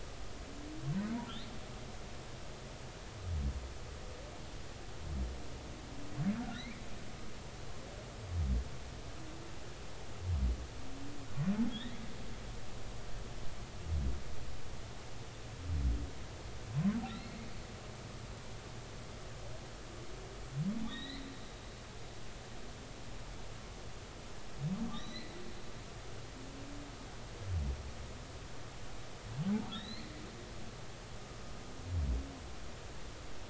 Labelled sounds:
6.4	6.8	humpback whale, 1.3 to 2.5 kHz
11.7	12.1	humpback whale, 1.6 to 4.0 kHz
17.1	17.3	humpback whale, 3.4 to 4.4 kHz
20.8	21.3	humpback whale, 1.8 to 4.4 kHz
24.9	25.3	humpback whale, 1.9 to 6.0 kHz
29.7	30.1	humpback whale, 3.1 to 4.5 kHz

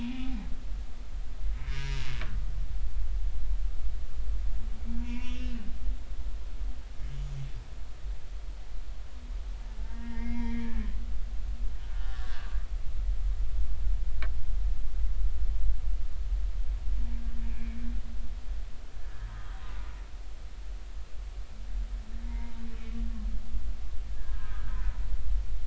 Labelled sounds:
1.5	2.1	humpback whale, 0.93 to 5.8 kHz
5.0	5.6	humpback whale, 0.90 to 2.8 kHz
7.1	7.4	humpback whale, 6.7 to 7.0 kHz
9.8	10.9	humpback whale, 0.83 to 3.4 kHz
11.8	12.5	humpback whale, 1.3 to 3.0 kHz
17.5	17.8	humpback whale, 2.1 to 2.5 kHz
19.3	19.5	humpback whale, 1.2 to 1.3 kHz
22.2	22.6	humpback whale, 0.83 to 2.2 kHz
24.1	24.8	humpback whale, 1.2 to 1.9 kHz

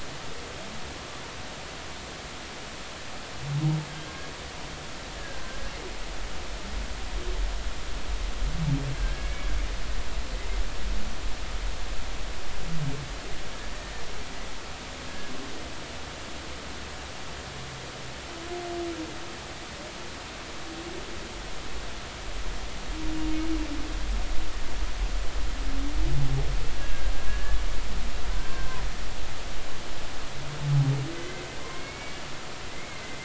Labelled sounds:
9.0	9.5	humpback whale, 1.5 to 2.3 kHz
15.1	15.3	humpback whale, 1.6 to 1.7 kHz
26.8	27.6	humpback whale, 1.6 to 1.8 kHz
28.4	28.8	humpback whale, 0.96 to 1.6 kHz
31.2	32.2	humpback whale, 2.0 to 2.3 kHz
32.7	33.0	humpback whale, 2.0 to 2.2 kHz

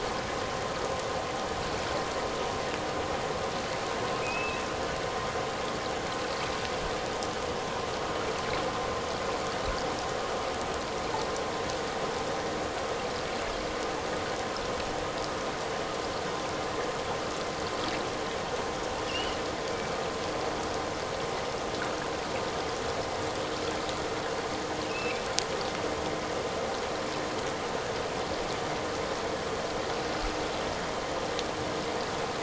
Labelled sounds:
4.2	4.6	killer whale, offshore, 2.4 to 2.7 kHz
19.1	19.4	killer whale, offshore, 2.6 to 3.1 kHz
24.8	25.3	killer whale, offshore, 2.2 to 2.9 kHz

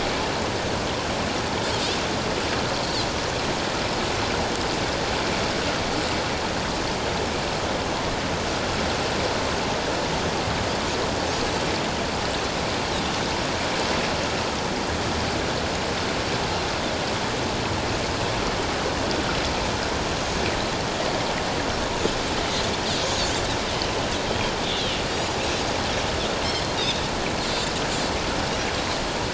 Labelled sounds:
24.3	24.5	Pacific white-sided dolphin, 3.1 to 3.3 kHz
26.8	27.0	Pacific white-sided dolphin, 3.3 to 3.8 kHz

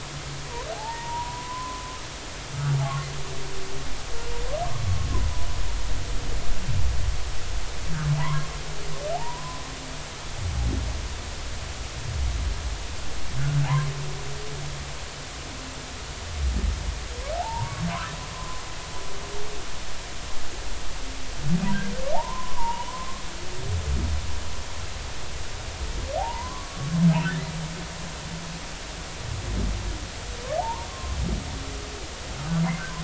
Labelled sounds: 0.7	1.8	humpback whale, 0.80 to 1.9 kHz
8.2	8.5	humpback whale, 0.80 to 1.2 kHz
9.1	9.6	humpback whale, 0.80 to 1.1 kHz
13.6	13.9	humpback whale, 0.80 to 1.1 kHz
17.4	18.6	humpback whale, 0.80 to 1.2 kHz
22.1	23.2	humpback whale, 0.80 to 1.2 kHz
26.2	26.8	humpback whale, 0.80 to 1.2 kHz
30.6	31.2	humpback whale, 0.80 to 1.2 kHz

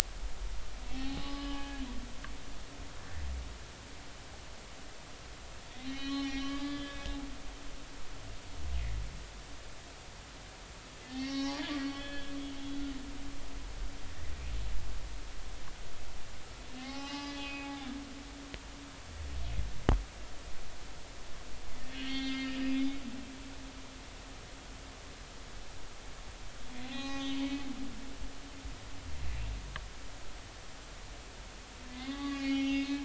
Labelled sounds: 0.9	1.8	humpback whale, 0.80 to 5.1 kHz
5.9	7.2	humpback whale, 1.1 to 5.9 kHz
11.0	12.3	humpback whale, 0.80 to 5.7 kHz
16.8	17.9	humpback whale, 0.80 to 5.2 kHz
21.9	22.8	humpback whale, 1.8 to 5.0 kHz
26.8	27.4	humpback whale, 0.80 to 6.3 kHz
31.9	33.0	humpback whale, 0.80 to 3.7 kHz

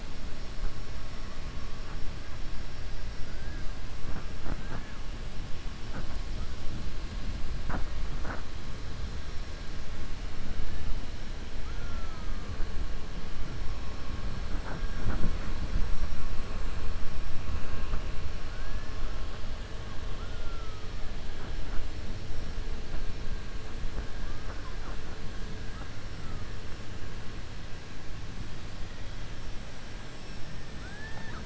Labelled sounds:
30.7	31.4	killer whale, 0.57 to 2.0 kHz

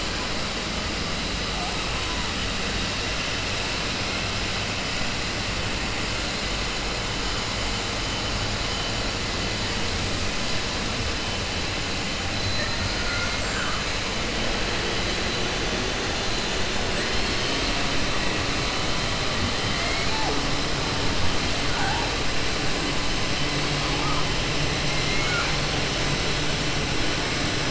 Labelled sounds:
24.9	25.5	killer whale, southern resident, 0.97 to 3.0 kHz

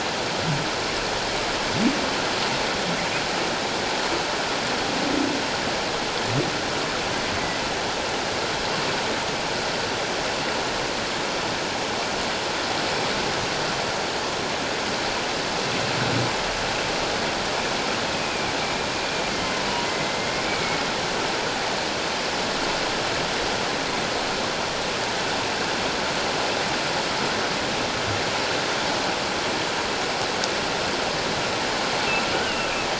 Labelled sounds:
18.1	18.5	humpback whale, 2.3 to 2.6 kHz
19.3	20.8	humpback whale, 2.0 to 2.3 kHz

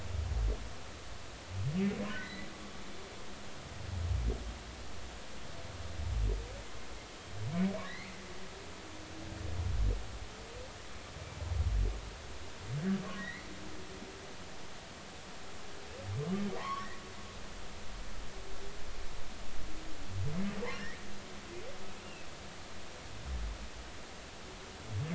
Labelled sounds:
2.1	2.5	humpback whale, 1.7 to 4.1 kHz
7.8	8.3	humpback whale, 1.6 to 4.4 kHz
13.0	13.3	humpback whale, 1.0 to 1.2 kHz
14.2	14.5	humpback whale, 1.8 to 2.2 kHz
16.6	16.9	humpback whale, 0.96 to 1.2 kHz

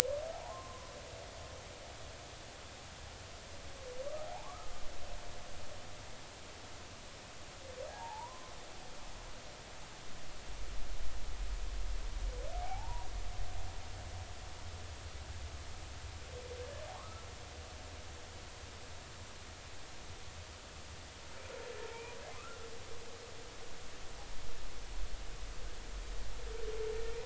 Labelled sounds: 0.3	0.9	humpback whale, 0.80 to 1.1 kHz
4.2	4.7	humpback whale, 0.80 to 1.4 kHz
7.9	8.5	humpback whale, 0.80 to 1.2 kHz
12.5	13.1	humpback whale, 0.80 to 1.0 kHz
17.0	17.2	humpback whale, 1.0 to 1.4 kHz

